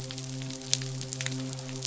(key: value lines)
label: biophony, midshipman
recorder: SoundTrap 500